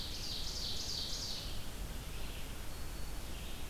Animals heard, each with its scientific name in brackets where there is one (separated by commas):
Black-throated Green Warbler (Setophaga virens), Ovenbird (Seiurus aurocapilla), Red-eyed Vireo (Vireo olivaceus)